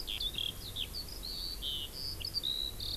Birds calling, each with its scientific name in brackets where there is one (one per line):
Eurasian Skylark (Alauda arvensis)